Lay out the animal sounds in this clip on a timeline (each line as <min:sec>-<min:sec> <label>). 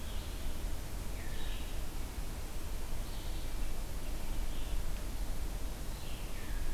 0:00.0-0:06.7 Red-eyed Vireo (Vireo olivaceus)